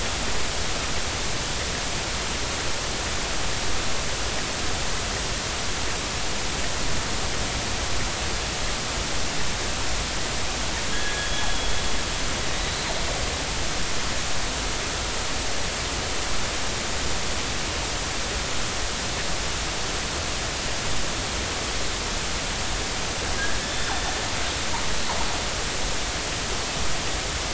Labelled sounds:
10.9	11.5	killer whale, northern resident, 1.6 to 3.5 kHz
23.6	23.9	killer whale, northern resident, 3.4 to 3.6 kHz

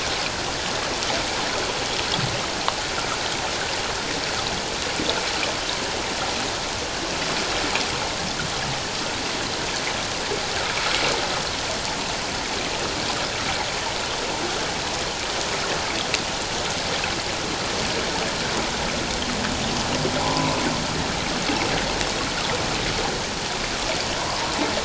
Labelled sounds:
20.2	20.6	water noise, 0.78 to 1.1 kHz

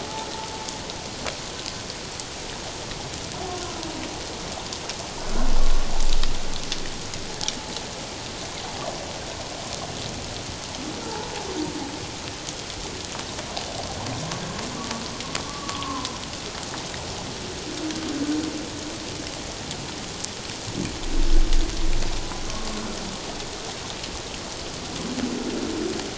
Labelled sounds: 5.2	5.5	humpback whale, 1.3 to 1.6 kHz
14.8	16.1	humpback whale, 0.91 to 1.2 kHz

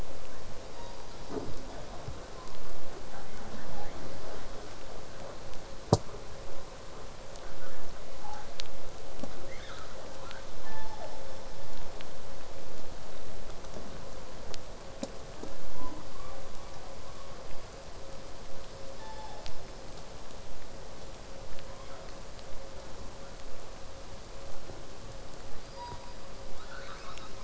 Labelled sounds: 0.7	1.0	killer whale, southern resident, 0.74 to 4.1 kHz
3.1	4.0	killer whale, southern resident, 0.83 to 2.4 kHz
7.4	8.5	killer whale, southern resident, 0.60 to 1.8 kHz
9.5	10.0	killer whale, southern resident, call S10, 0.92 to 6.3 kHz
10.1	11.3	killer whale, southern resident, 0.37 to 5.4 kHz
15.3	16.5	killer whale, southern resident, 0.28 to 1.6 kHz
19.0	19.6	killer whale, southern resident, 0.60 to 5.4 kHz
25.6	26.4	killer whale, southern resident, 0.83 to 5.0 kHz
26.5	27.4	killer whale, southern resident, call S10, 0.65 to 5.9 kHz

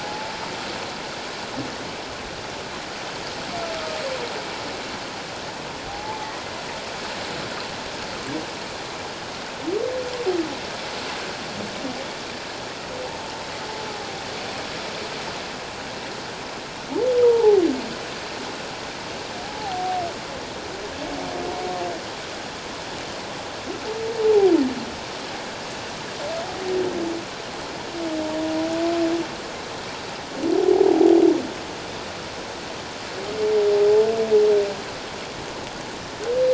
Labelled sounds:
0.0	0.3	humpback whale, 0.81 to 0.91 kHz
5.9	6.2	humpback whale, 0.78 to 0.94 kHz
17.2	17.6	humpback whale, 0.78 to 1.0 kHz
19.4	20.0	humpback whale, 0.78 to 0.91 kHz
24.2	24.5	humpback whale, 0.78 to 0.94 kHz
30.7	31.1	humpback whale, 0.78 to 0.88 kHz

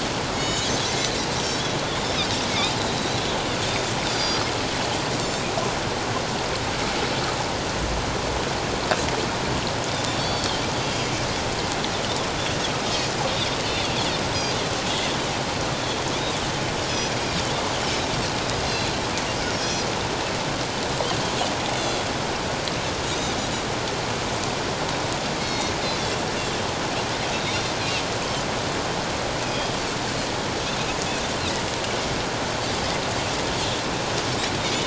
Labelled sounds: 0.3	0.7	Pacific white-sided dolphin, 2.1 to 7.6 kHz
2.0	2.7	Pacific white-sided dolphin, 2.1 to 5.3 kHz
3.6	4.4	Pacific white-sided dolphin, 3.4 to 5.0 kHz
10.2	10.6	Pacific white-sided dolphin, 3.1 to 4.7 kHz
15.7	16.0	Pacific white-sided dolphin, 3.2 to 3.6 kHz
16.9	17.1	Pacific white-sided dolphin, 4.9 to 5.2 kHz
18.5	18.9	Pacific white-sided dolphin, 4.0 to 5.0 kHz
21.8	22.0	Pacific white-sided dolphin, 3.2 to 3.7 kHz
23.1	23.3	Pacific white-sided dolphin, 3.6 to 3.9 kHz
25.4	25.7	Pacific white-sided dolphin, 2.1 to 6.0 kHz
27.3	27.6	Pacific white-sided dolphin, 3.6 to 3.8 kHz
29.4	29.7	Pacific white-sided dolphin, 3.2 to 5.1 kHz

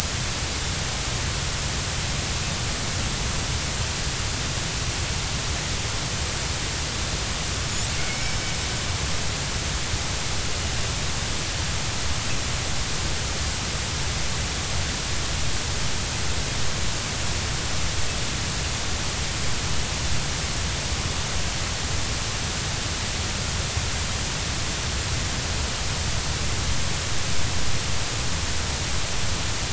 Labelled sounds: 8.0	8.5	killer whale, Bigg's (transient), 2.1 to 5.4 kHz

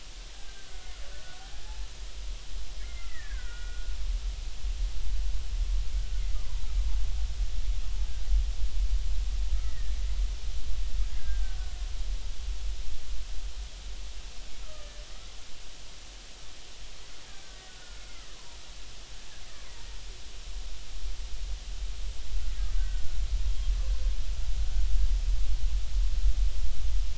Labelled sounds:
0.3	1.4	killer whale, Bigg's (transient), 1.3 to 1.7 kHz
1.6	1.9	killer whale, Bigg's (transient), 0.80 to 0.96 kHz
2.8	3.9	killer whale, Bigg's (transient), 1.4 to 2.3 kHz
6.3	6.7	killer whale, Bigg's (transient), 0.90 to 1.3 kHz
9.6	10.0	killer whale, Bigg's (transient), 1.7 to 2.1 kHz
11.2	11.6	killer whale, Bigg's (transient), 1.5 to 1.7 kHz
14.6	14.9	killer whale, Bigg's (transient), 1.2 to 1.4 kHz
17.7	18.3	killer whale, Bigg's (transient), 1.4 to 2.2 kHz
22.7	23.0	killer whale, Bigg's (transient), 1.4 to 1.6 kHz

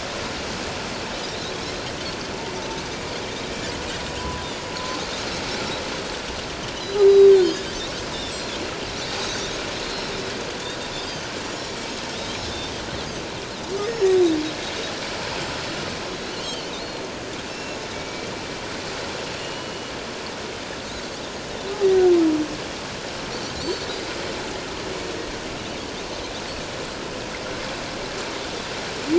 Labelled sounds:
1.2	1.6	Pacific white-sided dolphin, 3.6 to 4.2 kHz
4.2	4.5	humpback whale, 0.97 to 1.1 kHz
6.8	7.5	Pacific white-sided dolphin, 3.5 to 4.9 kHz
9.2	9.6	Pacific white-sided dolphin, 3.5 to 4.0 kHz
9.9	12.7	Pacific white-sided dolphin, 2.9 to 6.9 kHz
13.8	14.3	Pacific white-sided dolphin, 4.8 to 6.8 kHz
16.4	17.1	Pacific white-sided dolphin, 3.0 to 4.4 kHz
17.5	18.3	Pacific white-sided dolphin, 2.2 to 5.5 kHz
19.4	19.9	Pacific white-sided dolphin, 2.8 to 3.0 kHz
23.3	23.9	Pacific white-sided dolphin, 3.9 to 6.1 kHz

